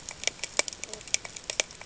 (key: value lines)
label: ambient
recorder: HydroMoth